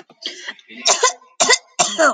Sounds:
Cough